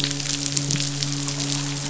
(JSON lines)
{"label": "biophony, midshipman", "recorder": "SoundTrap 500"}